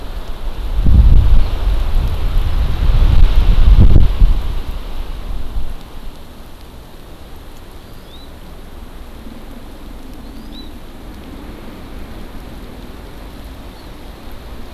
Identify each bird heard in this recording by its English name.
Hawaii Amakihi